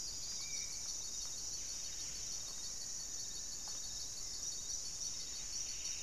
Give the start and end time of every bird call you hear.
0.0s-6.0s: Buff-breasted Wren (Cantorchilus leucotis)
0.0s-6.0s: Spot-winged Antshrike (Pygiptila stellaris)
1.8s-4.2s: Black-faced Antthrush (Formicarius analis)
4.7s-6.0s: Striped Woodcreeper (Xiphorhynchus obsoletus)

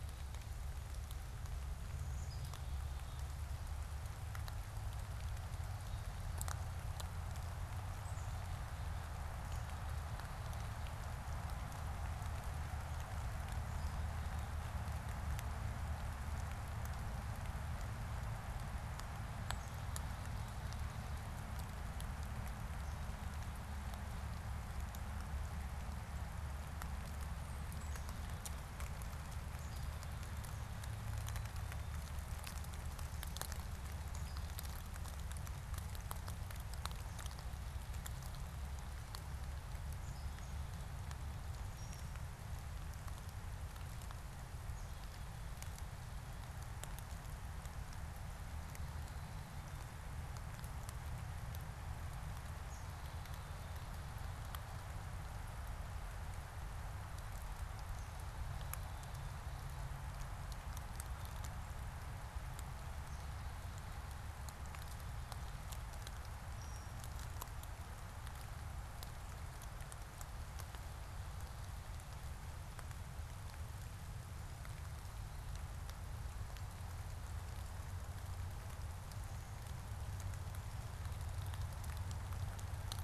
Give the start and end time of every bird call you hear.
1.9s-3.6s: Black-capped Chickadee (Poecile atricapillus)
7.8s-11.0s: Black-capped Chickadee (Poecile atricapillus)
27.6s-30.9s: Black-capped Chickadee (Poecile atricapillus)
41.6s-42.2s: unidentified bird
52.3s-54.0s: Black-capped Chickadee (Poecile atricapillus)
66.5s-67.0s: unidentified bird

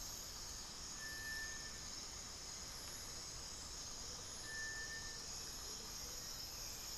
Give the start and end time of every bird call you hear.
0.9s-4.7s: Rufous-capped Antthrush (Formicarius colma)
4.0s-6.2s: Amazonian Motmot (Momotus momota)
4.6s-7.0s: Hauxwell's Thrush (Turdus hauxwelli)

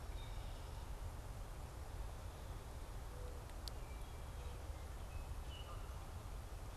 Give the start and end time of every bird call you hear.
0.0s-0.6s: Wood Thrush (Hylocichla mustelina)
1.5s-3.6s: Mourning Dove (Zenaida macroura)

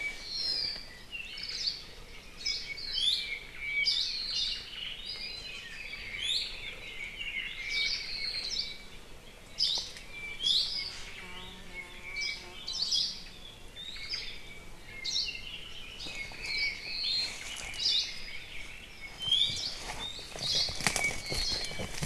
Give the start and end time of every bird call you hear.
0.0s-1.1s: Apapane (Himatione sanguinea)
1.2s-1.7s: Omao (Myadestes obscurus)
1.5s-1.9s: Hawaii Creeper (Loxops mana)
2.3s-2.8s: Hawaii Creeper (Loxops mana)
2.7s-3.2s: Hawaii Akepa (Loxops coccineus)
2.9s-3.4s: Iiwi (Drepanis coccinea)
3.1s-4.4s: Apapane (Himatione sanguinea)
3.8s-4.8s: Hawaii Akepa (Loxops coccineus)
4.6s-5.2s: Omao (Myadestes obscurus)
5.1s-8.4s: Red-billed Leiothrix (Leiothrix lutea)
6.1s-6.8s: Iiwi (Drepanis coccinea)
7.3s-8.6s: Apapane (Himatione sanguinea)
7.7s-8.1s: Hawaii Akepa (Loxops coccineus)
8.4s-8.9s: Hawaii Creeper (Loxops mana)
9.5s-10.0s: Hawaii Akepa (Loxops coccineus)
10.0s-11.1s: Apapane (Himatione sanguinea)
10.3s-10.9s: Iiwi (Drepanis coccinea)
11.7s-13.4s: Apapane (Himatione sanguinea)
12.1s-13.3s: Hawaii Creeper (Loxops mana)
13.7s-14.5s: Omao (Myadestes obscurus)
15.0s-15.4s: Hawaii Creeper (Loxops mana)
16.0s-17.4s: Apapane (Himatione sanguinea)
16.0s-19.0s: Red-billed Leiothrix (Leiothrix lutea)
16.5s-16.9s: Hawaii Akepa (Loxops coccineus)
17.8s-18.2s: Hawaii Akepa (Loxops coccineus)
19.2s-19.7s: Iiwi (Drepanis coccinea)
19.5s-19.9s: Hawaii Creeper (Loxops mana)
20.3s-20.9s: Hawaii Creeper (Loxops mana)
20.9s-22.0s: Apapane (Himatione sanguinea)

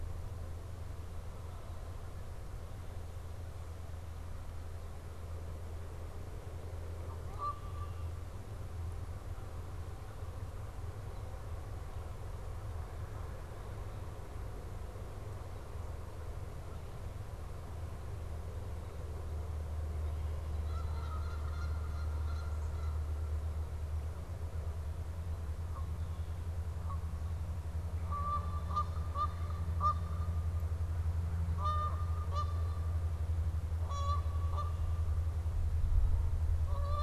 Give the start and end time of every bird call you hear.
6.5s-8.2s: Canada Goose (Branta canadensis)
20.1s-23.5s: Canada Goose (Branta canadensis)
25.5s-37.0s: Canada Goose (Branta canadensis)

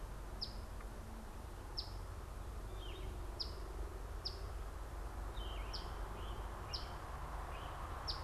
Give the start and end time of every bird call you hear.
0.0s-8.2s: Eastern Phoebe (Sayornis phoebe)
2.5s-3.1s: Yellow-throated Vireo (Vireo flavifrons)
5.2s-5.9s: Yellow-throated Vireo (Vireo flavifrons)
5.6s-8.0s: Great Crested Flycatcher (Myiarchus crinitus)

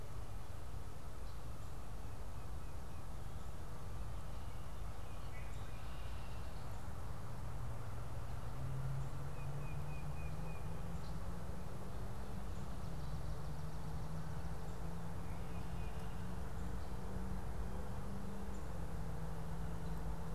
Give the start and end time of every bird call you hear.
5.1s-6.5s: Red-winged Blackbird (Agelaius phoeniceus)
9.1s-10.8s: Tufted Titmouse (Baeolophus bicolor)
15.1s-16.4s: Tufted Titmouse (Baeolophus bicolor)

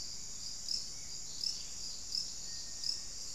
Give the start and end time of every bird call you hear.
0.0s-3.3s: Little Tinamou (Crypturellus soui)
2.3s-3.3s: Hauxwell's Thrush (Turdus hauxwelli)

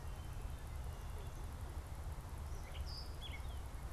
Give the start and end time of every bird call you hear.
2.6s-3.8s: Gray Catbird (Dumetella carolinensis)

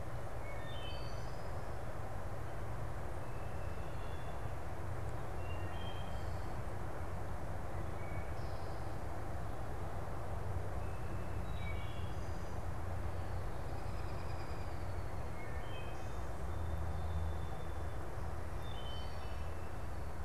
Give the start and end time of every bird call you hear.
0.0s-12.7s: Wood Thrush (Hylocichla mustelina)
13.0s-15.2s: American Robin (Turdus migratorius)
15.2s-20.2s: Wood Thrush (Hylocichla mustelina)
15.7s-18.1s: Song Sparrow (Melospiza melodia)

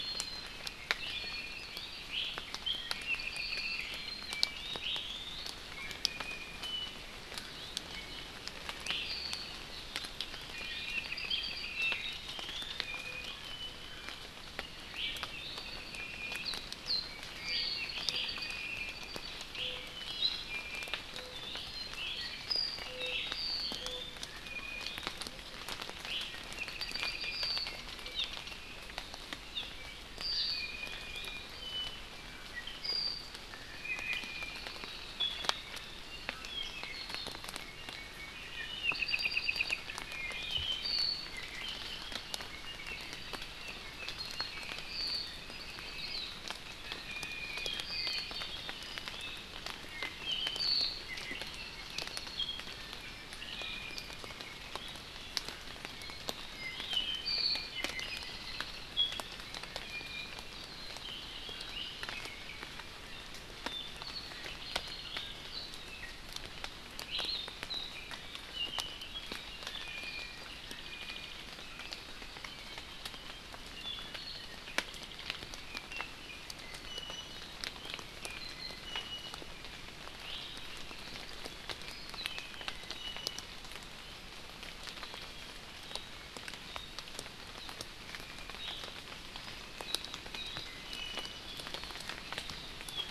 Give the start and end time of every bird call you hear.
1.1s-1.7s: Iiwi (Drepanis coccinea)
2.1s-2.3s: Iiwi (Drepanis coccinea)
2.7s-3.8s: Apapane (Himatione sanguinea)
4.8s-7.0s: Iiwi (Drepanis coccinea)
7.9s-8.3s: Iiwi (Drepanis coccinea)
8.8s-9.1s: Iiwi (Drepanis coccinea)
10.5s-11.1s: Iiwi (Drepanis coccinea)
11.0s-11.7s: Apapane (Himatione sanguinea)
11.7s-13.4s: Iiwi (Drepanis coccinea)
14.9s-15.6s: Iiwi (Drepanis coccinea)
15.9s-16.4s: Iiwi (Drepanis coccinea)
17.3s-19.3s: Apapane (Himatione sanguinea)
19.5s-21.0s: Iiwi (Drepanis coccinea)
21.3s-21.7s: Iiwi (Drepanis coccinea)
21.6s-24.1s: Apapane (Himatione sanguinea)
22.0s-22.2s: Iiwi (Drepanis coccinea)
24.4s-25.0s: Iiwi (Drepanis coccinea)
26.1s-26.3s: Iiwi (Drepanis coccinea)
26.5s-27.8s: Apapane (Himatione sanguinea)
27.0s-27.5s: Iiwi (Drepanis coccinea)
28.1s-28.3s: Hawaii Amakihi (Chlorodrepanis virens)
29.5s-29.7s: Hawaii Amakihi (Chlorodrepanis virens)
30.5s-31.5s: Iiwi (Drepanis coccinea)
31.5s-33.3s: Apapane (Himatione sanguinea)
33.5s-34.6s: Iiwi (Drepanis coccinea)
36.3s-37.4s: Apapane (Himatione sanguinea)
38.5s-41.4s: Apapane (Himatione sanguinea)
43.8s-45.4s: Apapane (Himatione sanguinea)
46.0s-46.3s: Hawaii Akepa (Loxops coccineus)
46.8s-47.7s: Iiwi (Drepanis coccinea)
47.9s-49.5s: Apapane (Himatione sanguinea)
49.9s-50.6s: Iiwi (Drepanis coccinea)
51.0s-51.4s: Iiwi (Drepanis coccinea)
53.5s-54.2s: Iiwi (Drepanis coccinea)
56.5s-58.3s: Apapane (Himatione sanguinea)
59.8s-60.5s: Iiwi (Drepanis coccinea)
63.7s-65.7s: Apapane (Himatione sanguinea)
67.1s-67.3s: Iiwi (Drepanis coccinea)
69.7s-70.4s: Iiwi (Drepanis coccinea)
70.8s-71.3s: Iiwi (Drepanis coccinea)
76.6s-77.4s: Iiwi (Drepanis coccinea)
78.2s-79.4s: Iiwi (Drepanis coccinea)
80.2s-80.4s: Iiwi (Drepanis coccinea)
82.7s-83.5s: Iiwi (Drepanis coccinea)
90.8s-91.4s: Iiwi (Drepanis coccinea)

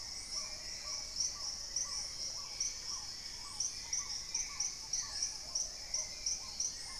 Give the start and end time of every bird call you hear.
0.0s-4.8s: Dusky-throated Antshrike (Thamnomanes ardesiacus)
0.0s-7.0s: Black-tailed Trogon (Trogon melanurus)
0.0s-7.0s: Hauxwell's Thrush (Turdus hauxwelli)
0.0s-7.0s: Paradise Tanager (Tangara chilensis)
0.3s-6.5s: Plumbeous Pigeon (Patagioenas plumbea)

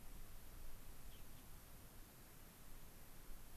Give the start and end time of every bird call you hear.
1.1s-1.5s: Gray-crowned Rosy-Finch (Leucosticte tephrocotis)

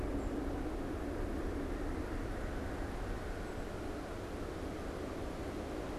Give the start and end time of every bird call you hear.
0.0s-4.0s: Black-capped Chickadee (Poecile atricapillus)

